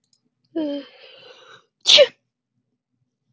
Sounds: Sneeze